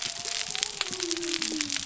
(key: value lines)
label: biophony
recorder: SoundTrap 300